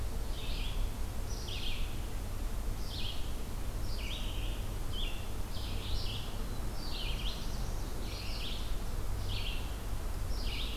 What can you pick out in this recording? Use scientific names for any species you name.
Vireo olivaceus, Setophaga caerulescens